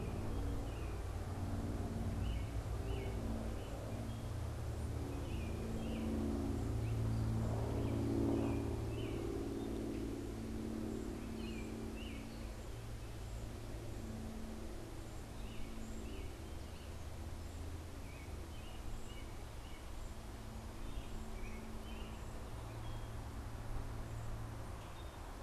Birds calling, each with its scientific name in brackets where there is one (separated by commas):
American Robin (Turdus migratorius)